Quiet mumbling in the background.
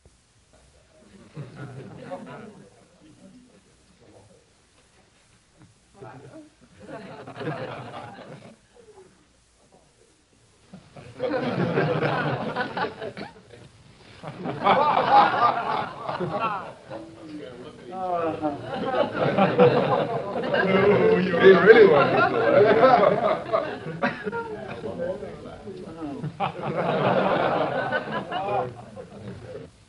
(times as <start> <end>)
1.2 2.7